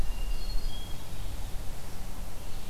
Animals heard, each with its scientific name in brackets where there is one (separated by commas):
Hermit Thrush (Catharus guttatus), Red-eyed Vireo (Vireo olivaceus)